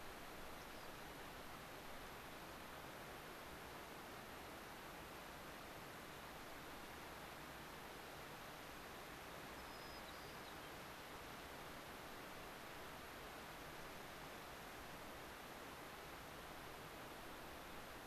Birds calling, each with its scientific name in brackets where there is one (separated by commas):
White-crowned Sparrow (Zonotrichia leucophrys), Rock Wren (Salpinctes obsoletus)